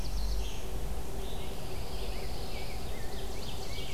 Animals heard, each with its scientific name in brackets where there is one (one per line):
Black-throated Blue Warbler (Setophaga caerulescens)
Pine Warbler (Setophaga pinus)
Ovenbird (Seiurus aurocapilla)
Red-eyed Vireo (Vireo olivaceus)
Rose-breasted Grosbeak (Pheucticus ludovicianus)